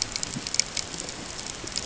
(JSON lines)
{"label": "ambient", "recorder": "HydroMoth"}